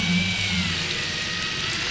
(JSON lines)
{"label": "anthrophony, boat engine", "recorder": "SoundTrap 500"}